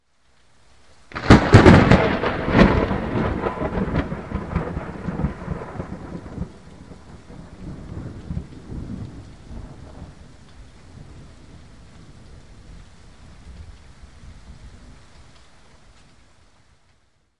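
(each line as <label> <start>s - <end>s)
A thunderclap is heard fading away. 1.1s - 6.5s
A faint thunderstorm is heard in the background. 7.6s - 10.2s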